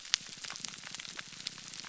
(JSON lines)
{"label": "biophony, grouper groan", "recorder": "SoundTrap 300"}